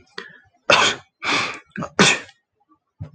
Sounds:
Sneeze